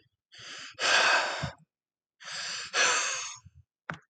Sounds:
Sigh